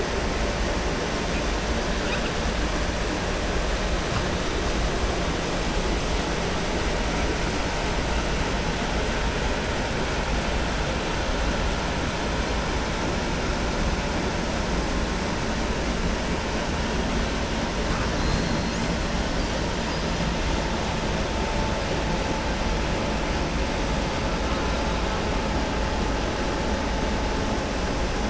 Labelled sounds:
18.1	18.8	killer whale, southern resident, 3.4 to 5.2 kHz

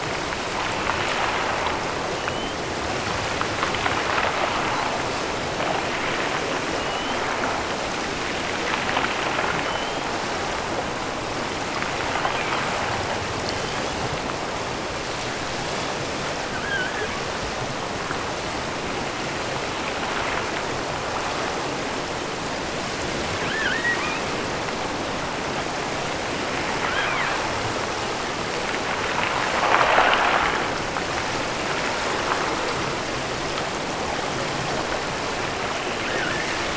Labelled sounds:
2.0	2.7	killer whale, offshore, 2.6 to 3.5 kHz
6.6	7.3	killer whale, offshore, 2.6 to 3.4 kHz
9.6	10.3	killer whale, offshore, 2.8 to 3.7 kHz
13.4	14.1	killer whale, offshore, 2.8 to 3.8 kHz
16.5	17.2	killer whale, offshore, 1.1 to 3.5 kHz
23.4	24.4	killer whale, offshore, 0.89 to 3.4 kHz
26.7	27.5	killer whale, offshore, 1.1 to 3.5 kHz
36.0	36.7	killer whale, offshore, 1.3 to 2.1 kHz

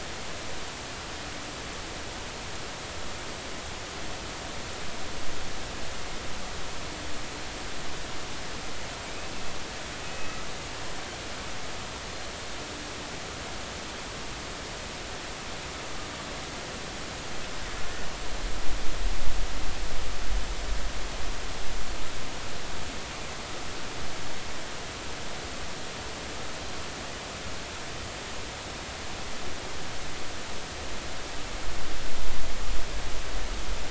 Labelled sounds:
10.0	10.4	killer whale, Bigg's (transient), 2.5 to 2.6 kHz

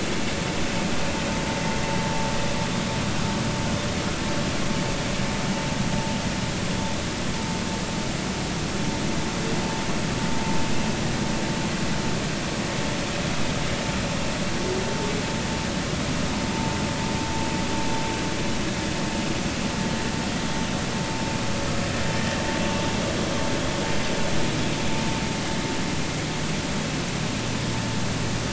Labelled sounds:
22.2	22.4	vessel noise, 1.7 to 1.9 kHz

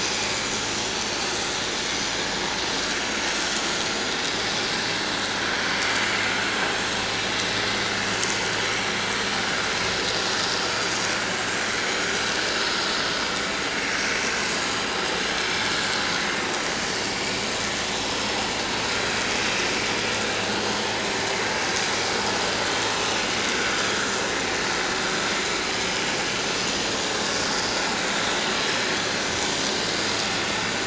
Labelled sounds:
15.6	15.9	vessel noise, 6.9 to 7.2 kHz

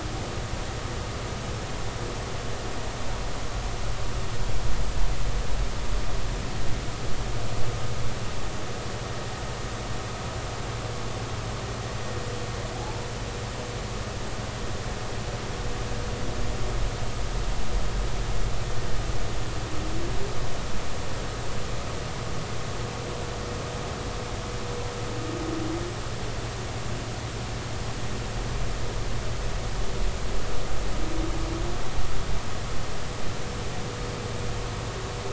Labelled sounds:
12.8	13.1	humpback whale, 0.80 to 1.0 kHz

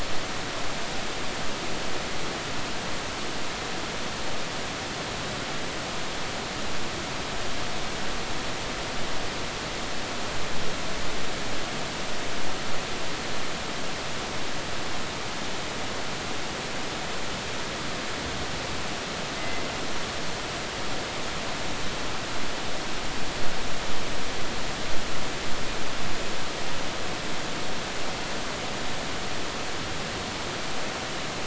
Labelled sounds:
19.4	19.6	killer whale, northern resident, G clan, call N24ii, 2.0 to 2.1 kHz

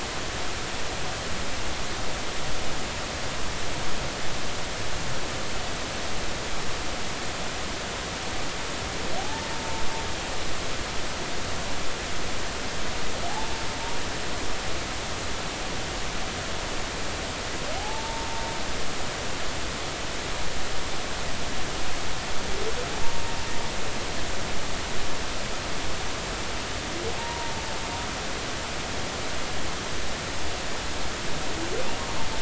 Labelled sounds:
9.2	9.5	humpback whale, 0.80 to 0.93 kHz
17.8	18.3	humpback whale, 0.80 to 0.96 kHz
27.2	27.6	humpback whale, 0.86 to 0.99 kHz

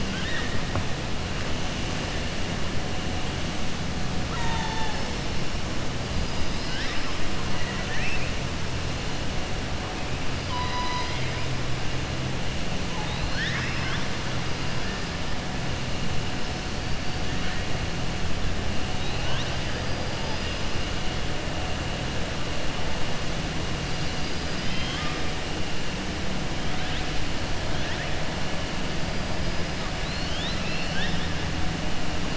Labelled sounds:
0.0	0.5	killer whale, southern resident, 1.2 to 4.3 kHz
7.5	8.3	killer whale, southern resident, 1.4 to 3.0 kHz
13.0	14.1	killer whale, southern resident, 1.1 to 6.3 kHz
23.9	25.2	killer whale, southern resident, 1.1 to 5.4 kHz
30.0	31.3	killer whale, southern resident, 1.6 to 5.3 kHz

